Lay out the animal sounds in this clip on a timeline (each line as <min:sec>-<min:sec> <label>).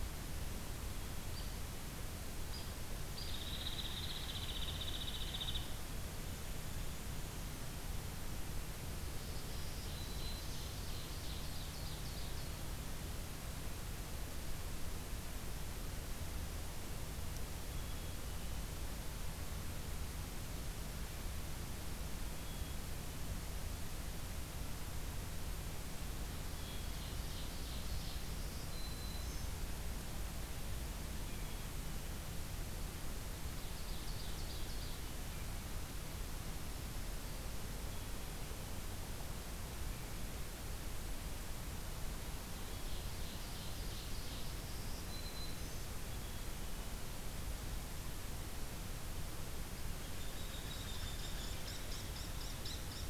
0:01.3-0:01.5 Hairy Woodpecker (Dryobates villosus)
0:02.5-0:02.7 Hairy Woodpecker (Dryobates villosus)
0:03.1-0:05.7 Hairy Woodpecker (Dryobates villosus)
0:09.0-0:10.8 Black-throated Green Warbler (Setophaga virens)
0:09.6-0:12.4 Ovenbird (Seiurus aurocapilla)
0:17.5-0:18.3 Black-throated Green Warbler (Setophaga virens)
0:22.0-0:22.9 Black-throated Green Warbler (Setophaga virens)
0:26.6-0:28.2 Ovenbird (Seiurus aurocapilla)
0:28.0-0:29.5 Black-throated Green Warbler (Setophaga virens)
0:33.2-0:34.9 Ovenbird (Seiurus aurocapilla)
0:36.6-0:37.5 Black-capped Chickadee (Poecile atricapillus)
0:42.7-0:44.6 Ovenbird (Seiurus aurocapilla)
0:44.4-0:45.8 Black-throated Green Warbler (Setophaga virens)
0:46.0-0:46.9 Black-capped Chickadee (Poecile atricapillus)
0:49.7-0:53.1 Hairy Woodpecker (Dryobates villosus)